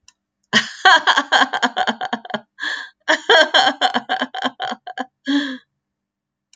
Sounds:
Laughter